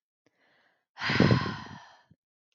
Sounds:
Sigh